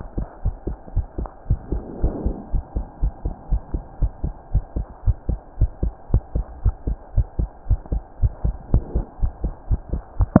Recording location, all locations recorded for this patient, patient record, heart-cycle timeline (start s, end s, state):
pulmonary valve (PV)
aortic valve (AV)+pulmonary valve (PV)+tricuspid valve (TV)+mitral valve (MV)
#Age: Child
#Sex: Female
#Height: 115.0 cm
#Weight: 18.9 kg
#Pregnancy status: False
#Murmur: Absent
#Murmur locations: nan
#Most audible location: nan
#Systolic murmur timing: nan
#Systolic murmur shape: nan
#Systolic murmur grading: nan
#Systolic murmur pitch: nan
#Systolic murmur quality: nan
#Diastolic murmur timing: nan
#Diastolic murmur shape: nan
#Diastolic murmur grading: nan
#Diastolic murmur pitch: nan
#Diastolic murmur quality: nan
#Outcome: Normal
#Campaign: 2015 screening campaign
0.00	0.42	unannotated
0.42	0.56	S1
0.56	0.66	systole
0.66	0.78	S2
0.78	0.94	diastole
0.94	1.06	S1
1.06	1.18	systole
1.18	1.30	S2
1.30	1.48	diastole
1.48	1.60	S1
1.60	1.72	systole
1.72	1.82	S2
1.82	2.00	diastole
2.00	2.14	S1
2.14	2.24	systole
2.24	2.36	S2
2.36	2.52	diastole
2.52	2.64	S1
2.64	2.76	systole
2.76	2.86	S2
2.86	3.00	diastole
3.00	3.14	S1
3.14	3.22	systole
3.22	3.32	S2
3.32	3.50	diastole
3.50	3.62	S1
3.62	3.72	systole
3.72	3.82	S2
3.82	4.00	diastole
4.00	4.12	S1
4.12	4.24	systole
4.24	4.34	S2
4.34	4.52	diastole
4.52	4.64	S1
4.64	4.76	systole
4.76	4.86	S2
4.86	5.04	diastole
5.04	5.16	S1
5.16	5.28	systole
5.28	5.40	S2
5.40	5.58	diastole
5.58	5.70	S1
5.70	5.80	systole
5.80	5.94	S2
5.94	6.12	diastole
6.12	6.24	S1
6.24	6.34	systole
6.34	6.46	S2
6.46	6.64	diastole
6.64	6.76	S1
6.76	6.86	systole
6.86	6.98	S2
6.98	7.14	diastole
7.14	7.28	S1
7.28	7.36	systole
7.36	7.50	S2
7.50	7.68	diastole
7.68	7.80	S1
7.80	7.90	systole
7.90	8.04	S2
8.04	8.20	diastole
8.20	8.32	S1
8.32	8.42	systole
8.42	8.56	S2
8.56	8.72	diastole
8.72	8.84	S1
8.84	8.94	systole
8.94	9.04	S2
9.04	9.20	diastole
9.20	9.34	S1
9.34	9.42	systole
9.42	9.52	S2
9.52	9.68	diastole
9.68	9.82	S1
9.82	9.91	systole
9.91	10.04	S2
10.04	10.18	diastole
10.18	10.30	S1
10.30	10.40	unannotated